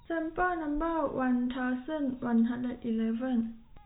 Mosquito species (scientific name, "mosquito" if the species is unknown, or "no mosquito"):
no mosquito